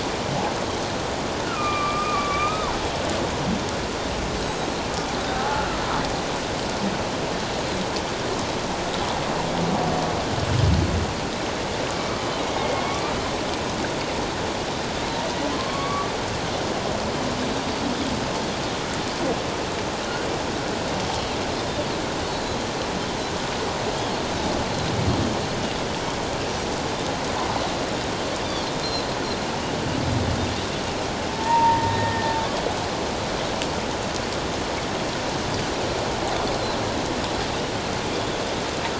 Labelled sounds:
1.4	2.7	humpback whale, 1.1 to 2.6 kHz
4.4	4.7	Pacific white-sided dolphin, 6.3 to 6.7 kHz
5.4	5.6	humpback whale, 0.78 to 0.91 kHz
12.5	13.1	humpback whale, 2.1 to 2.4 kHz
15.6	16.1	humpback whale, 1.0 to 4.6 kHz
21.1	21.4	Pacific white-sided dolphin, 3.2 to 3.3 kHz
31.3	32.3	humpback whale, 0.84 to 2.0 kHz

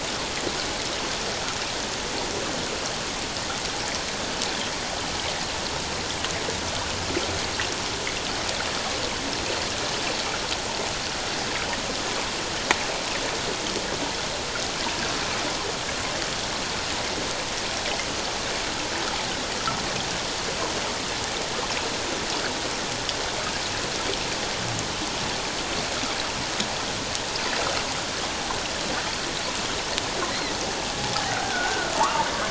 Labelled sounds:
31.3	31.9	humpback whale, 1.4 to 1.6 kHz

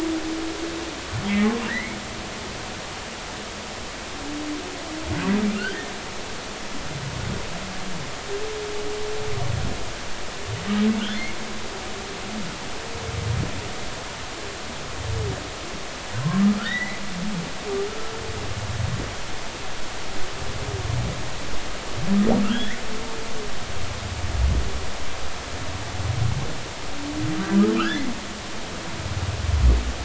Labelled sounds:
1.3	2.0	humpback whale, 1.6 to 2.3 kHz
16.6	17.0	humpback whale, 1.7 to 2.3 kHz
22.4	22.8	humpback whale, 1.2 to 3.5 kHz
27.7	28.0	humpback whale, 1.2 to 3.6 kHz

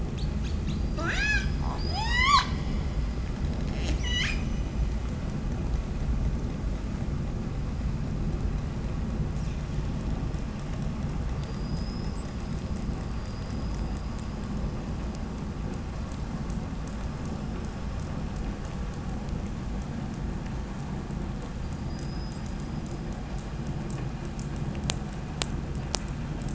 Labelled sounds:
0.0	1.5	killer whale, call S18, 0.38 to 8.0 kHz
1.5	2.6	killer whale, 0.38 to 8.0 kHz
3.3	5.0	killer whale, call S22, 0.87 to 8.0 kHz
15.6	18.2	killer whale, 4.2 to 8.0 kHz

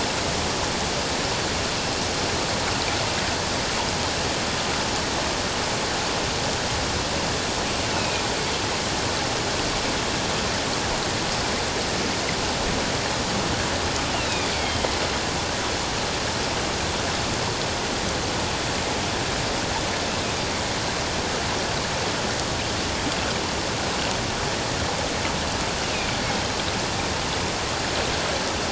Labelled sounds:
7.9	8.2	killer whale, northern resident, A clan, AA subclan, call N04, 2.4 to 2.7 kHz
14.2	14.9	killer whale, northern resident, A clan, AA subclan, call N04, 3.0 to 4.1 kHz

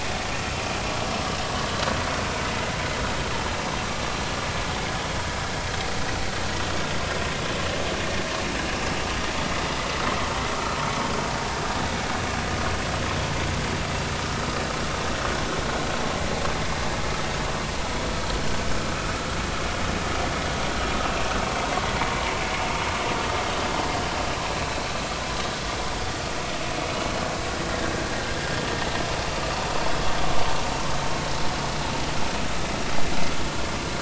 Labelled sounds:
9.0	9.3	vessel noise, 1.2 to 1.3 kHz
21.0	21.4	vessel noise, 2.5 to 2.8 kHz
27.8	28.1	vessel noise, 1.5 to 1.7 kHz

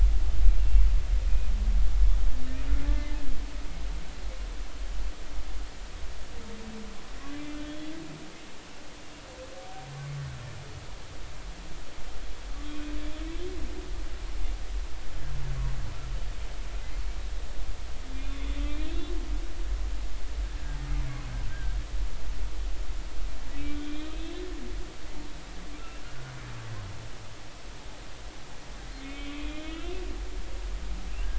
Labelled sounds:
0.6	0.8	humpback whale, 2.7 to 2.8 kHz
7.3	8.0	humpback whale, 2.0 to 3.4 kHz
12.7	12.9	humpback whale, 2.3 to 2.6 kHz
18.1	18.6	humpback whale, 2.3 to 3.6 kHz
21.5	21.8	humpback whale, 1.4 to 1.7 kHz
23.9	24.3	humpback whale, 3.4 to 4.2 kHz
25.8	26.0	humpback whale, 2.6 to 2.8 kHz
29.0	30.0	humpback whale, 1.2 to 3.7 kHz

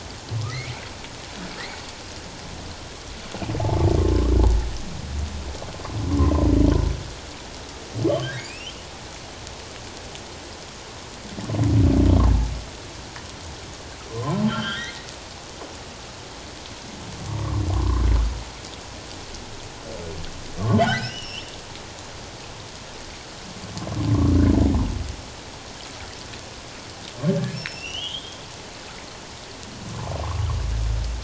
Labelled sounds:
4.0	4.3	humpback whale, 1.0 to 1.3 kHz
8.1	8.7	humpback whale, 2.3 to 3.3 kHz
14.1	15.1	humpback whale, 0.97 to 4.3 kHz
17.7	18.0	humpback whale, 0.97 to 1.2 kHz
20.9	21.5	humpback whale, 1.4 to 5.5 kHz
27.5	28.4	humpback whale, 2.5 to 5.5 kHz

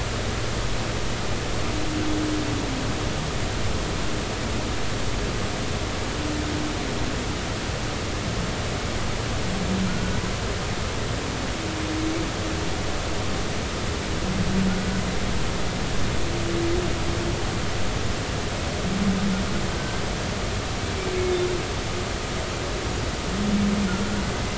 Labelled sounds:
9.9	10.1	humpback whale, 1.3 to 1.5 kHz
21.1	21.4	humpback whale, 2.1 to 2.3 kHz

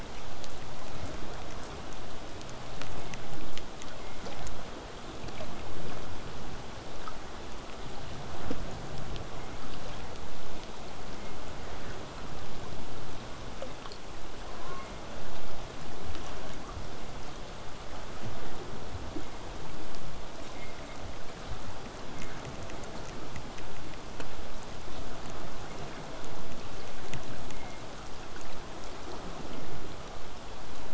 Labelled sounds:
14.6	14.9	killer whale, southern resident, J pod, call S04, 0.35 to 2.4 kHz

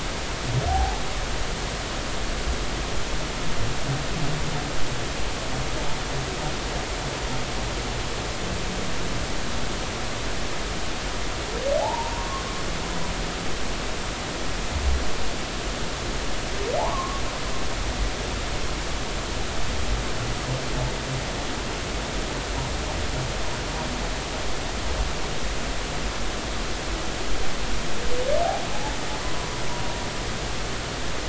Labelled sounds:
0.7	1.0	humpback whale, 0.80 to 0.93 kHz
11.8	12.4	humpback whale, 0.80 to 1.2 kHz
16.8	17.2	humpback whale, 0.80 to 1.2 kHz

